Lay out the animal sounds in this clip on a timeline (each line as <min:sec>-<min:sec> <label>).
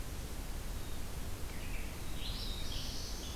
0:00.0-0:03.4 Red-eyed Vireo (Vireo olivaceus)
0:01.8-0:03.4 Black-throated Blue Warbler (Setophaga caerulescens)